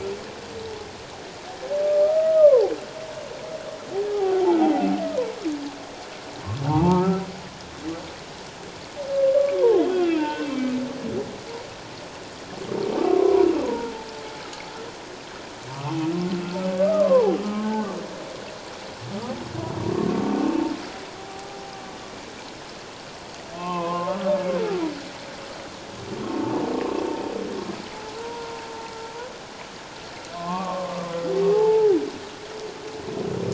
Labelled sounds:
1.8	2.7	humpback whale, 0.78 to 1.3 kHz
4.1	4.6	humpback whale, 0.78 to 0.97 kHz
6.7	7.2	humpback whale, 0.78 to 1.4 kHz
9.4	10.7	humpback whale, 0.78 to 3.3 kHz
13.0	13.9	humpback whale, 0.88 to 1.3 kHz
15.7	16.0	humpback whale, 1.0 to 1.3 kHz
16.8	17.9	humpback whale, 0.78 to 1.6 kHz
19.9	20.2	humpback whale, 1.0 to 1.2 kHz
21.2	21.6	humpback whale, 0.78 to 0.88 kHz
23.6	24.3	humpback whale, 0.81 to 2.7 kHz
28.2	28.6	humpback whale, 0.91 to 1.0 kHz
30.3	30.9	humpback whale, 0.97 to 1.2 kHz
31.5	32.0	humpback whale, 0.78 to 0.94 kHz

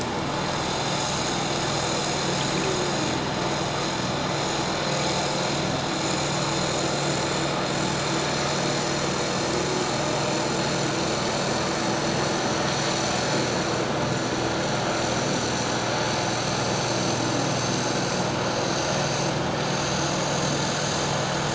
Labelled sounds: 18.4	18.8	vessel noise, 6.4 to 6.9 kHz

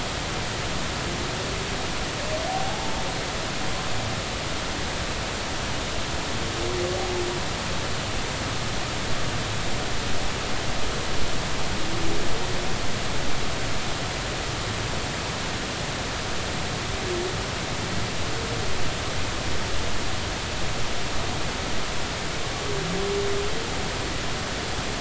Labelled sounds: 2.5	3.0	humpback whale, 0.80 to 0.93 kHz

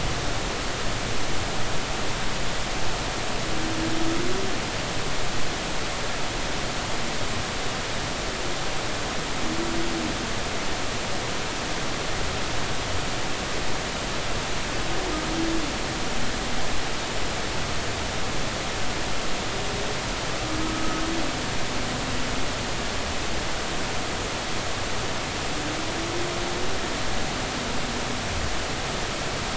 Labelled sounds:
20.6	21.0	humpback whale, 1.2 to 1.3 kHz

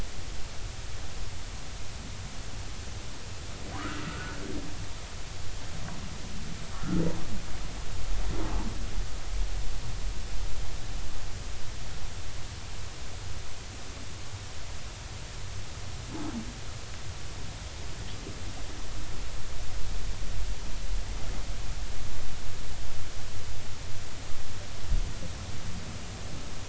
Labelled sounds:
3.7	4.4	humpback whale, 0.93 to 1.6 kHz
6.7	7.0	humpback whale, 1.2 to 1.5 kHz

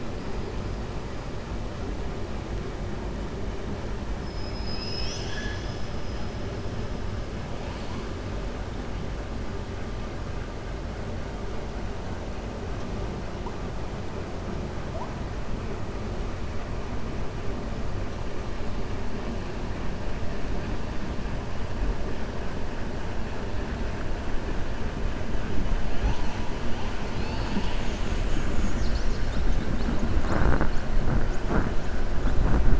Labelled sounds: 4.3	5.8	killer whale, 1.7 to 7.4 kHz

